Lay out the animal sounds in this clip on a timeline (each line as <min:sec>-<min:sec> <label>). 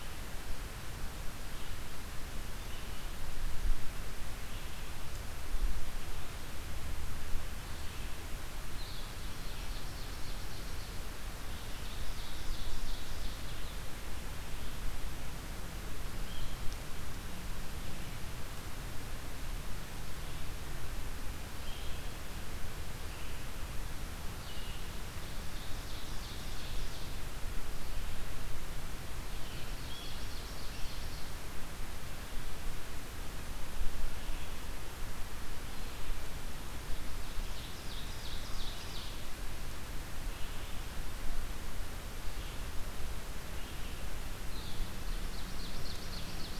0:01.5-0:09.8 Red-eyed Vireo (Vireo olivaceus)
0:08.6-0:09.3 Blue-headed Vireo (Vireo solitarius)
0:09.3-0:11.0 Ovenbird (Seiurus aurocapilla)
0:11.3-0:13.8 Ovenbird (Seiurus aurocapilla)
0:20.1-0:24.9 Red-eyed Vireo (Vireo olivaceus)
0:25.1-0:27.2 Ovenbird (Seiurus aurocapilla)
0:29.3-0:31.3 Ovenbird (Seiurus aurocapilla)
0:37.2-0:39.3 Ovenbird (Seiurus aurocapilla)
0:40.3-0:46.6 Red-eyed Vireo (Vireo olivaceus)
0:45.0-0:46.6 Ovenbird (Seiurus aurocapilla)